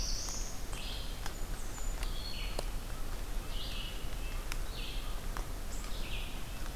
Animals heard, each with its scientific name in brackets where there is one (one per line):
Black-throated Blue Warbler (Setophaga caerulescens)
Red-breasted Nuthatch (Sitta canadensis)
Blackburnian Warbler (Setophaga fusca)
Red-eyed Vireo (Vireo olivaceus)